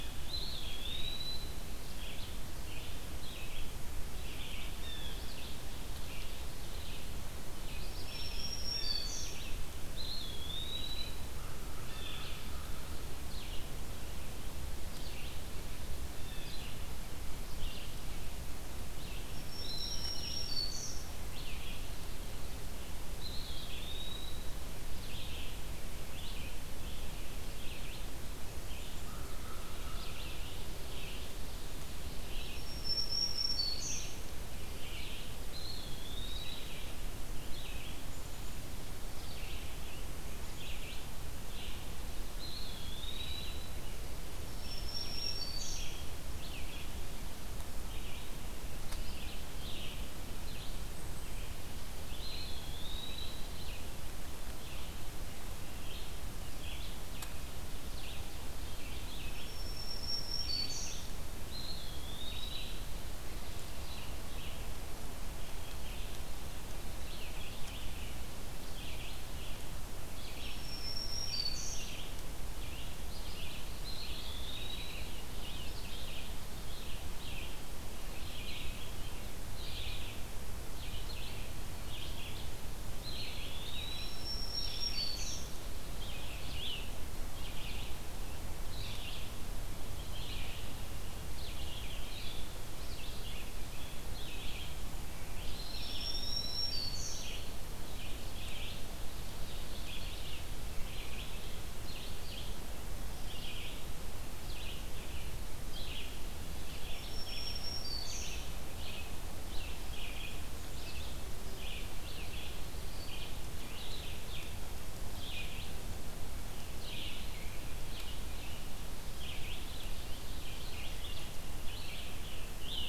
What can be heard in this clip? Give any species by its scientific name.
Vireo olivaceus, Contopus virens, Cyanocitta cristata, Setophaga virens, Corvus brachyrhynchos, Poecile atricapillus